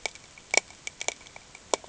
{"label": "ambient", "recorder": "HydroMoth"}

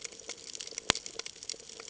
{"label": "ambient", "recorder": "HydroMoth"}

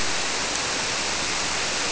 {"label": "biophony", "recorder": "SoundTrap 300"}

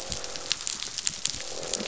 {"label": "biophony, croak", "recorder": "SoundTrap 500"}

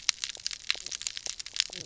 {"label": "biophony, knock croak", "recorder": "SoundTrap 300"}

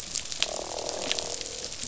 {"label": "biophony, croak", "recorder": "SoundTrap 500"}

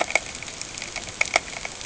{"label": "ambient", "recorder": "HydroMoth"}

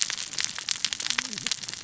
{"label": "biophony, cascading saw", "recorder": "SoundTrap 600 or HydroMoth"}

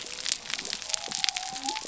{"label": "biophony", "recorder": "SoundTrap 300"}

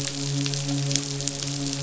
{"label": "biophony, midshipman", "recorder": "SoundTrap 500"}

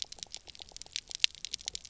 {"label": "biophony, pulse", "recorder": "SoundTrap 300"}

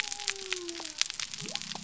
{"label": "biophony", "recorder": "SoundTrap 300"}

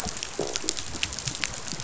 {"label": "biophony", "recorder": "SoundTrap 500"}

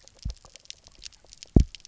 {"label": "biophony, double pulse", "recorder": "SoundTrap 300"}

